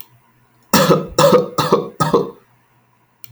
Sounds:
Cough